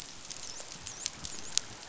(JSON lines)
{"label": "biophony, dolphin", "recorder": "SoundTrap 500"}